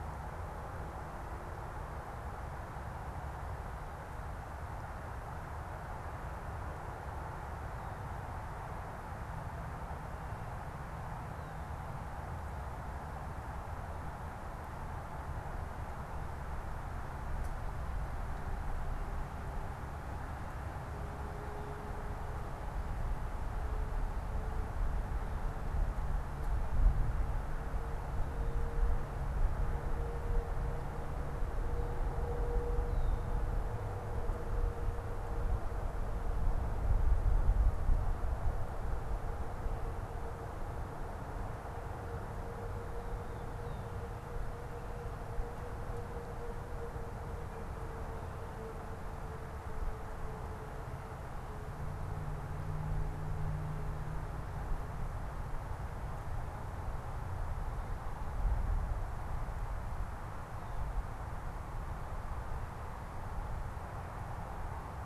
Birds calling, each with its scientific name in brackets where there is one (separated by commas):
Red-winged Blackbird (Agelaius phoeniceus)